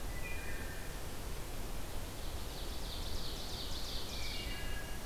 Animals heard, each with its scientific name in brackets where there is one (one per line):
Ovenbird (Seiurus aurocapilla)
Wood Thrush (Hylocichla mustelina)